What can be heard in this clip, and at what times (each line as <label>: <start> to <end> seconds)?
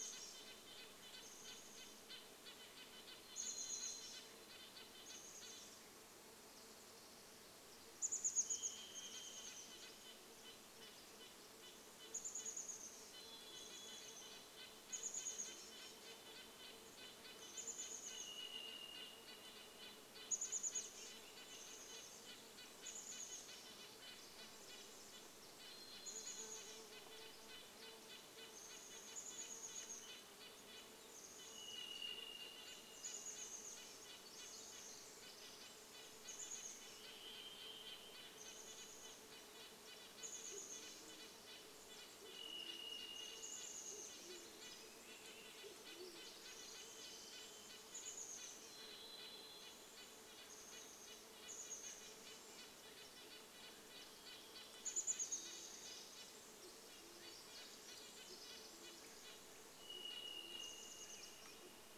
Red-breasted Nuthatch song: 0 to 6 seconds
Chestnut-backed Chickadee call: 0 to 10 seconds
insect buzz: 0 to 40 seconds
Varied Thrush song: 2 to 4 seconds
Varied Thrush song: 8 to 10 seconds
Red-breasted Nuthatch song: 8 to 62 seconds
Varied Thrush song: 12 to 14 seconds
Chestnut-backed Chickadee call: 12 to 62 seconds
Varied Thrush song: 18 to 20 seconds
Varied Thrush song: 24 to 28 seconds
Varied Thrush song: 30 to 34 seconds
Varied Thrush song: 36 to 40 seconds
Band-tailed Pigeon song: 40 to 48 seconds
Varied Thrush song: 42 to 44 seconds
insect buzz: 44 to 62 seconds
Varied Thrush song: 48 to 50 seconds
Pacific Wren song: 54 to 60 seconds
Band-tailed Pigeon song: 56 to 62 seconds
Varied Thrush song: 58 to 62 seconds